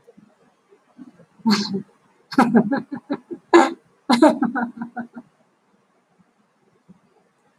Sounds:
Laughter